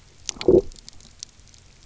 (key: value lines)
label: biophony, low growl
recorder: SoundTrap 300